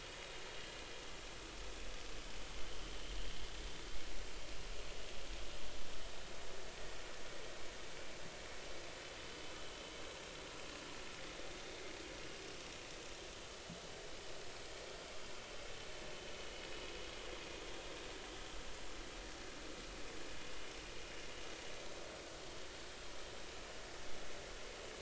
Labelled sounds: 2.5	2.9	vessel noise, 2.9 to 3.2 kHz

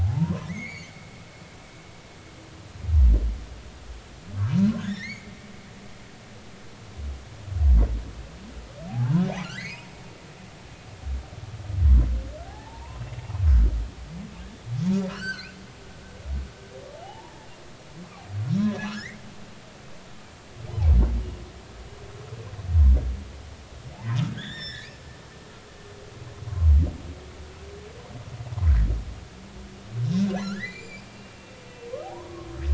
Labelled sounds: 0.0	1.1	humpback whale, 0.80 to 4.7 kHz
4.8	5.3	humpback whale, 1.4 to 4.6 kHz
8.9	9.9	humpback whale, 0.80 to 6.8 kHz
12.4	13.0	humpback whale, 0.80 to 1.9 kHz
14.9	15.5	humpback whale, 1.2 to 5.8 kHz
16.9	17.3	humpback whale, 0.80 to 1.0 kHz
18.6	19.2	humpback whale, 0.96 to 2.3 kHz
23.9	24.9	humpback whale, 0.80 to 5.6 kHz
30.4	31.1	humpback whale, 1.3 to 7.4 kHz
32.0	32.5	humpback whale, 0.80 to 1.2 kHz

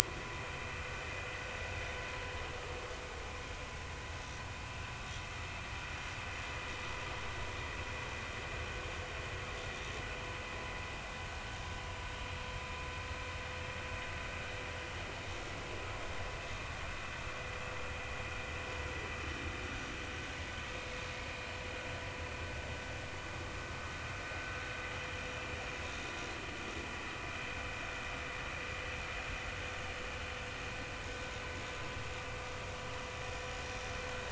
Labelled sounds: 0.0	0.8	vessel noise, 2.3 to 2.7 kHz

